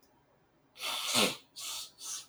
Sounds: Sniff